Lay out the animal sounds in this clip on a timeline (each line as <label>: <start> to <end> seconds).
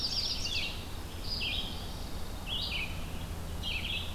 Black-throated Blue Warbler (Setophaga caerulescens): 0.0 to 0.7 seconds
Ovenbird (Seiurus aurocapilla): 0.0 to 0.9 seconds
Red-eyed Vireo (Vireo olivaceus): 0.0 to 4.1 seconds